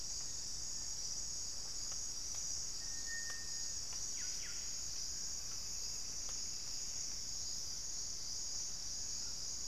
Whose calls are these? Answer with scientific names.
Cantorchilus leucotis, Myrmotherula brachyura